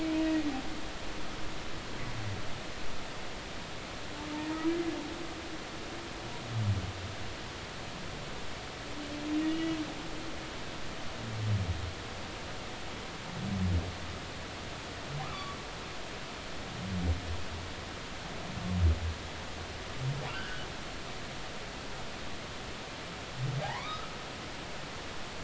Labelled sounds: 9.5	9.8	humpback whale, 2.8 to 2.9 kHz
15.3	15.6	humpback whale, 1.0 to 1.4 kHz
20.3	20.6	humpback whale, 1.2 to 1.7 kHz
23.6	24.1	humpback whale, 0.80 to 2.5 kHz

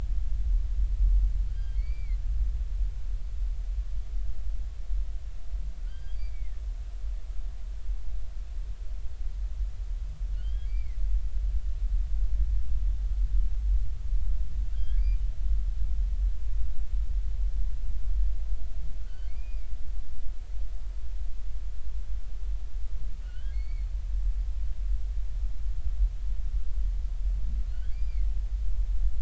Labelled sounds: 1.5	2.2	humpback whale, 1.3 to 4.7 kHz
5.8	6.6	humpback whale, 1.4 to 5.0 kHz
10.4	11.0	humpback whale, 1.9 to 3.4 kHz
14.7	15.0	humpback whale, 1.5 to 3.4 kHz
19.0	19.7	humpback whale, 1.3 to 3.2 kHz
23.2	23.9	humpback whale, 1.4 to 4.6 kHz
27.7	28.3	humpback whale, 1.4 to 5.0 kHz

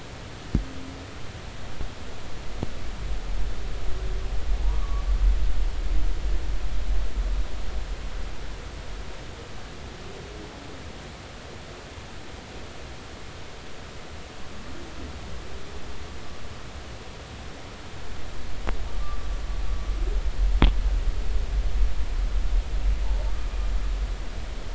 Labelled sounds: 4.6	5.1	humpback whale, 0.80 to 1.2 kHz
19.0	19.2	humpback whale, 1.1 to 1.2 kHz

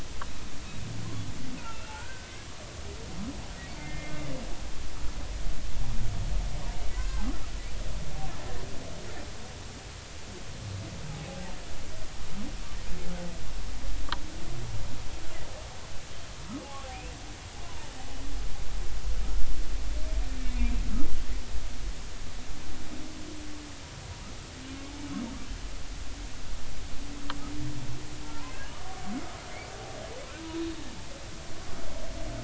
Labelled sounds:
1.6	2.3	humpback whale, 1.3 to 2.8 kHz
3.8	4.1	humpback whale, 1.7 to 2.2 kHz
7.0	7.3	humpback whale, 0.80 to 1.6 kHz
16.6	17.1	humpback whale, 0.80 to 2.8 kHz
18.6	18.9	humpback whale, 0.86 to 1.1 kHz
20.4	20.7	humpback whale, 2.1 to 2.5 kHz
28.2	29.0	humpback whale, 0.86 to 1.2 kHz
30.6	30.8	humpback whale, 3.6 to 3.8 kHz

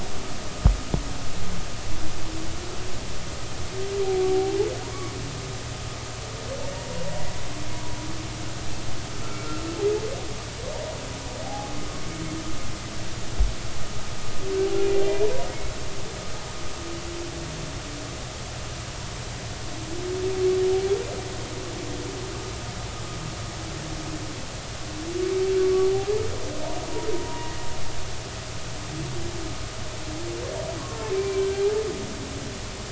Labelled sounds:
4.3	4.6	humpback whale, 0.80 to 0.90 kHz
6.7	7.0	humpback whale, 0.90 to 1.0 kHz
9.2	9.7	humpback whale, 1.3 to 1.5 kHz
11.4	11.8	humpback whale, 0.80 to 0.90 kHz
27.1	27.5	humpback whale, 0.90 to 1.0 kHz
31.1	31.5	humpback whale, 2.3 to 2.4 kHz

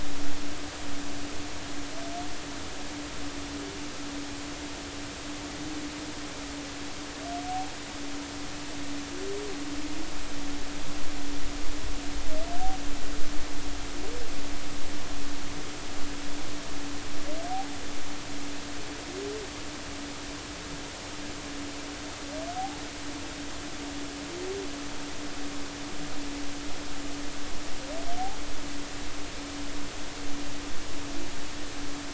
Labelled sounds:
17.5	17.8	humpback whale, 0.80 to 0.86 kHz

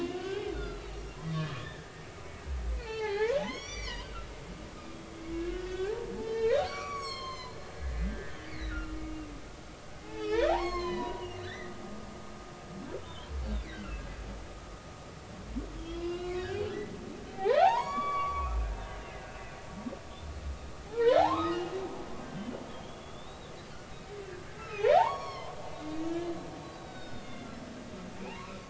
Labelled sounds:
0.0	0.9	humpback whale, 1.2 to 4.2 kHz
1.3	1.9	humpback whale, 1.5 to 3.6 kHz
2.8	4.3	humpback whale, 0.80 to 7.1 kHz
5.3	9.1	humpback whale, 0.80 to 8.0 kHz
10.0	12.1	humpback whale, 0.80 to 6.6 kHz
13.0	14.1	humpback whale, 1.9 to 3.7 kHz
15.8	16.6	humpback whale, 0.96 to 3.4 kHz
17.3	18.5	humpback whale, 0.80 to 6.9 kHz
19.2	19.6	humpback whale, 2.4 to 2.7 kHz
20.9	23.5	humpback whale, 0.80 to 3.9 kHz
24.6	26.3	humpback whale, 0.80 to 5.7 kHz
26.8	27.5	humpback whale, 1.4 to 5.2 kHz
28.3	28.5	humpback whale, 0.80 to 1.2 kHz

